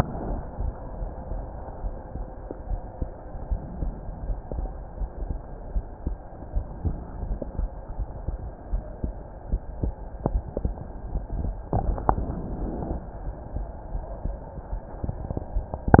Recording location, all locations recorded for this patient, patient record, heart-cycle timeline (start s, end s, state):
pulmonary valve (PV)
aortic valve (AV)+pulmonary valve (PV)+tricuspid valve (TV)+mitral valve (MV)
#Age: Child
#Sex: Male
#Height: 143.0 cm
#Weight: 34.2 kg
#Pregnancy status: False
#Murmur: Absent
#Murmur locations: nan
#Most audible location: nan
#Systolic murmur timing: nan
#Systolic murmur shape: nan
#Systolic murmur grading: nan
#Systolic murmur pitch: nan
#Systolic murmur quality: nan
#Diastolic murmur timing: nan
#Diastolic murmur shape: nan
#Diastolic murmur grading: nan
#Diastolic murmur pitch: nan
#Diastolic murmur quality: nan
#Outcome: Normal
#Campaign: 2015 screening campaign
0.00	1.79	unannotated
1.79	1.96	S1
1.96	2.16	systole
2.16	2.28	S2
2.28	2.68	diastole
2.68	2.80	S1
2.80	2.98	systole
2.98	3.12	S2
3.12	3.44	diastole
3.44	3.60	S1
3.60	3.80	systole
3.80	3.94	S2
3.94	4.24	diastole
4.24	4.38	S1
4.38	4.54	systole
4.54	4.70	S2
4.70	5.00	diastole
5.00	5.10	S1
5.10	5.28	systole
5.28	5.40	S2
5.40	5.72	diastole
5.72	5.84	S1
5.84	6.04	systole
6.04	6.18	S2
6.18	6.54	diastole
6.54	6.68	S1
6.68	6.84	systole
6.84	6.96	S2
6.96	7.24	diastole
7.24	7.38	S1
7.38	7.56	systole
7.56	7.70	S2
7.70	7.98	diastole
7.98	8.08	S1
8.08	8.26	systole
8.26	8.40	S2
8.40	8.70	diastole
8.70	8.82	S1
8.82	9.02	systole
9.02	9.16	S2
9.16	9.48	diastole
9.48	9.60	S1
9.60	9.80	systole
9.80	9.94	S2
9.94	10.24	diastole
10.24	10.42	S1
10.42	10.62	systole
10.62	10.74	S2
10.74	11.12	diastole
11.12	11.24	S1
11.24	11.42	systole
11.42	11.56	S2
11.56	11.84	diastole
11.84	11.98	S1
11.98	12.10	systole
12.10	12.24	S2
12.24	12.52	diastole
12.52	12.66	S1
12.66	12.82	systole
12.82	12.94	S2
12.94	13.24	diastole
13.24	13.36	S1
13.36	13.54	systole
13.54	13.66	S2
13.66	13.94	diastole
13.94	14.04	S1
14.04	14.24	systole
14.24	14.38	S2
14.38	14.70	diastole
14.70	14.80	S1
14.80	15.00	systole
15.00	15.16	S2
15.16	15.54	diastole
15.54	15.68	S1
15.68	16.00	unannotated